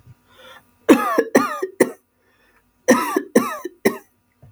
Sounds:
Cough